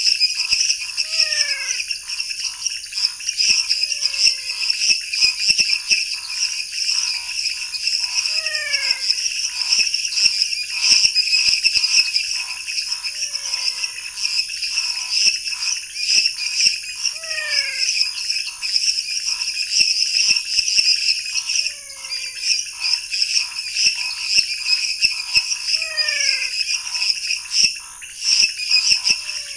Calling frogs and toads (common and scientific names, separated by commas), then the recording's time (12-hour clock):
lesser tree frog (Dendropsophus minutus), dwarf tree frog (Dendropsophus nanus), pointedbelly frog (Leptodactylus podicipinus), Scinax fuscovarius, menwig frog (Physalaemus albonotatus)
9:30pm